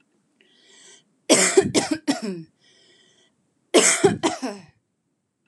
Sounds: Cough